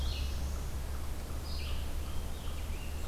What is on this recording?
Black-throated Blue Warbler, Red-eyed Vireo, American Robin